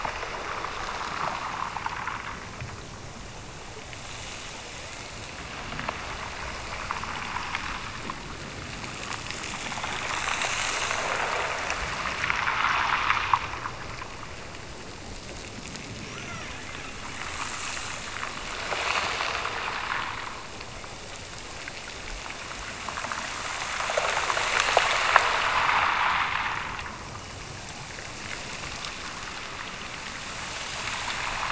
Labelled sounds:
16.1	16.7	killer whale, Bigg's (transient), Gulf of Alaska transient, 0.93 to 2.6 kHz

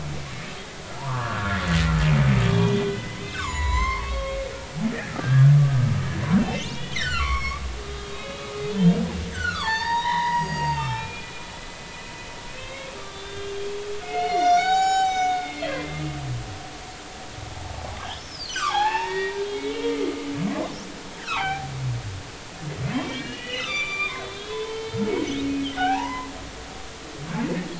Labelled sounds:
1.0	1.6	humpback whale, 0.83 to 1.8 kHz
2.4	4.4	humpback whale, 0.86 to 7.4 kHz
4.9	5.8	humpback whale, 1.1 to 2.0 kHz
6.4	7.6	humpback whale, 0.99 to 4.6 kHz
8.1	9.0	humpback whale, 2.4 to 3.9 kHz
9.3	11.5	humpback whale, 0.80 to 7.7 kHz
12.5	13.6	humpback whale, 1.1 to 3.9 kHz
14.0	16.0	humpback whale, 0.80 to 6.9 kHz
17.7	20.3	humpback whale, 0.80 to 5.5 kHz
21.2	21.7	humpback whale, 0.80 to 3.0 kHz
22.9	25.0	humpback whale, 0.86 to 7.1 kHz
25.8	26.3	humpback whale, 0.80 to 2.1 kHz

